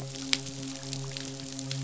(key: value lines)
label: biophony, midshipman
recorder: SoundTrap 500